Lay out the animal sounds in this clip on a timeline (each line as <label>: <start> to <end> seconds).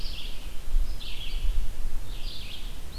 Red-eyed Vireo (Vireo olivaceus): 0.0 to 3.0 seconds